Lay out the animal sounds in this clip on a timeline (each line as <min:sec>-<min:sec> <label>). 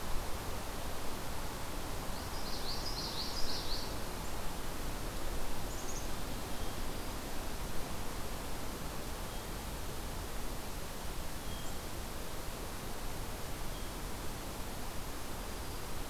0:02.3-0:03.9 Common Yellowthroat (Geothlypis trichas)
0:05.6-0:06.2 Black-capped Chickadee (Poecile atricapillus)